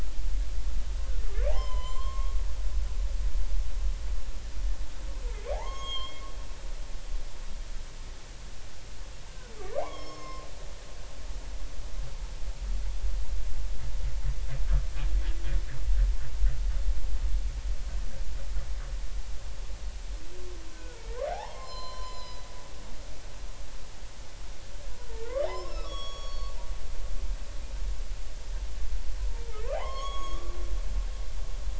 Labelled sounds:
1.5	2.4	humpback whale, 0.80 to 4.3 kHz
5.5	6.2	humpback whale, 0.80 to 7.6 kHz
9.8	10.5	humpback whale, 0.80 to 5.5 kHz
20.7	21.0	humpback whale, 1.3 to 1.6 kHz
21.3	22.5	humpback whale, 0.80 to 7.4 kHz
25.1	26.5	humpback whale, 0.80 to 6.8 kHz
29.7	30.5	humpback whale, 0.80 to 6.7 kHz

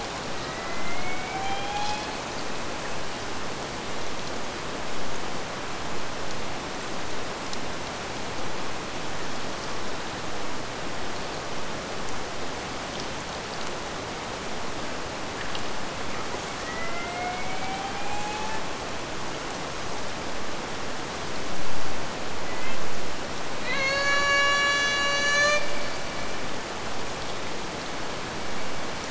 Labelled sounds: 0.0	2.4	killer whale, Bigg's (transient), AT1 transient, 0.44 to 4.4 kHz
16.2	18.8	killer whale, Bigg's (transient), AT1 transient, 0.46 to 8.0 kHz
22.3	22.8	killer whale, Bigg's (transient), AT1 transient, 1.7 to 3.3 kHz
23.6	25.7	killer whale, Bigg's (transient), AT1 transient, 0.44 to 8.0 kHz

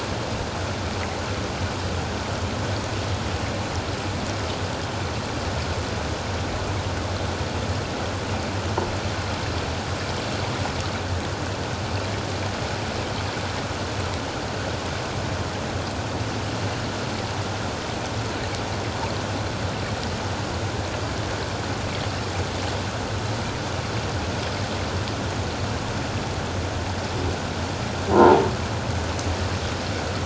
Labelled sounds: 28.1	28.4	croaking sound likely from a nearby submerged object, 0.78 to 1.1 kHz

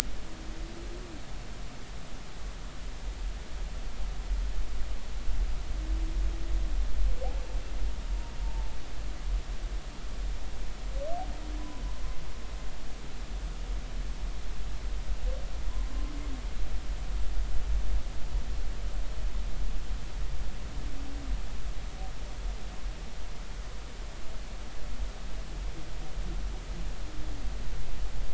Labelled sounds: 8.4	8.8	humpback whale, 0.80 to 0.96 kHz
11.6	11.8	humpback whale, 0.96 to 1.1 kHz

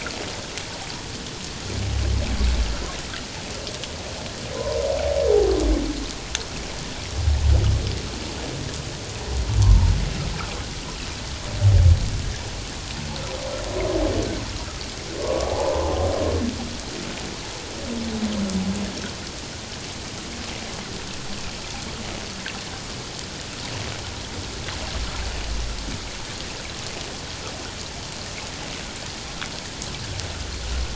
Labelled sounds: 15.2	15.9	humpback whale, 0.78 to 1.2 kHz

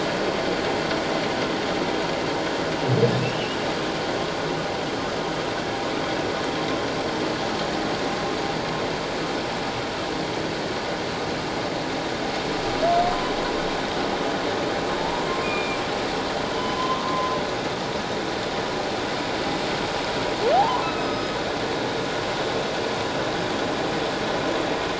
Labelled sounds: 3.3	3.6	humpback whale, 2.6 to 3.0 kHz
15.0	15.8	humpback whale, 0.84 to 2.5 kHz
16.5	17.3	humpback whale, 0.94 to 3.2 kHz
20.5	21.4	humpback whale, 0.78 to 5.1 kHz

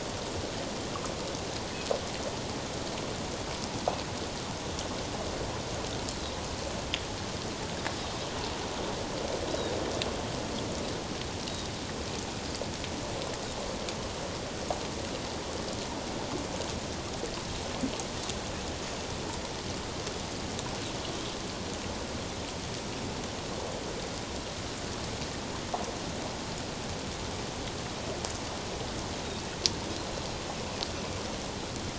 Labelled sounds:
9.5	9.8	Pacific white-sided dolphin, 3.7 to 4.0 kHz

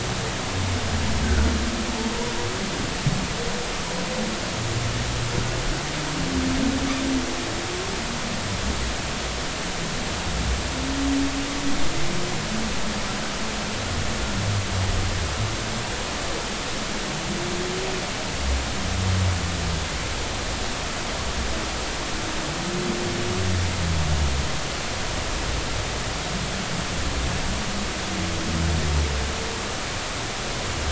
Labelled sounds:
1.2	1.5	humpback whale, 1.3 to 1.6 kHz

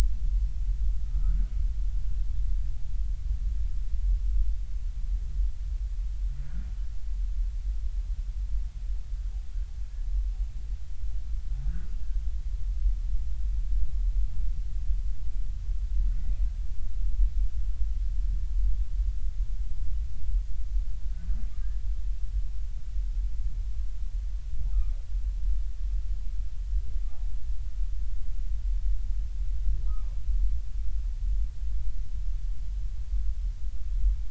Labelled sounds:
1.0	1.4	humpback whale, 1.2 to 1.5 kHz
11.6	11.9	humpback whale, 1.4 to 1.7 kHz
29.9	30.2	humpback whale, 0.99 to 1.3 kHz

